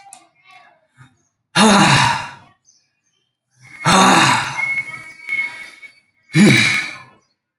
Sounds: Sigh